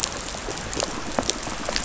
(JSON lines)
{"label": "biophony, pulse", "recorder": "SoundTrap 500"}